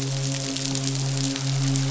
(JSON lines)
{"label": "biophony, midshipman", "recorder": "SoundTrap 500"}